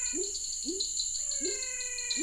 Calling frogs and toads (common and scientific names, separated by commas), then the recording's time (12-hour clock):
dwarf tree frog (Dendropsophus nanus), pepper frog (Leptodactylus labyrinthicus), menwig frog (Physalaemus albonotatus)
7:30pm